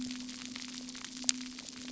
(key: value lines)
label: anthrophony, boat engine
recorder: SoundTrap 300